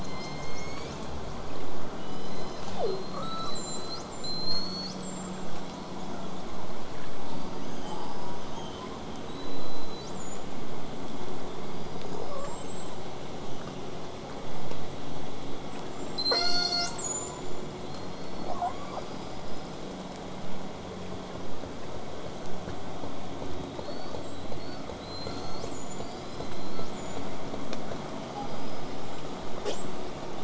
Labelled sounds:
0.0	1.5	killer whale, southern resident, call S01, 2.0 to 7.8 kHz
2.0	3.1	killer whale, southern resident, J pod, call S03, 0.27 to 8.0 kHz
2.8	5.5	killer whale, southern resident, 1.0 to 8.0 kHz
7.3	9.0	killer whale, southern resident, 2.7 to 8.0 kHz
7.8	8.5	killer whale, southern resident, J pod, call S04, 0.47 to 1.6 kHz
9.3	10.5	killer whale, southern resident, 3.7 to 8.0 kHz
11.6	12.7	killer whale, southern resident, whistle, 4.5 to 8.0 kHz
12.1	13.1	killer whale, southern resident, J pod, call S44, 0.42 to 8.0 kHz
15.7	17.8	killer whale, southern resident, call S42, 0.23 to 8.0 kHz
16.9	17.4	killer whale, southern resident, J pod, call S04, 0.25 to 1.5 kHz
17.8	19.8	killer whale, southern resident, J pod, call S44, 0.39 to 8.0 kHz
23.8	25.0	killer whale, southern resident, 1.1 to 8.0 kHz
24.9	26.1	killer whale, southern resident, call S42, 0.47 to 8.0 kHz
26.0	27.3	killer whale, southern resident, 1.0 to 8.0 kHz
28.2	29.1	killer whale, southern resident, 4.5 to 8.0 kHz
29.6	30.0	killer whale, southern resident, call S08i, 0.19 to 8.0 kHz

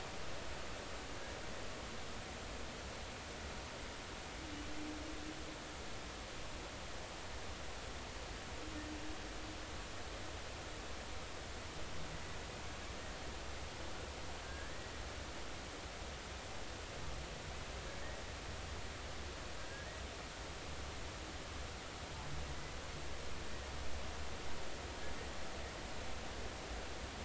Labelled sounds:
14.4	14.9	humpback whale, 1.5 to 2.0 kHz

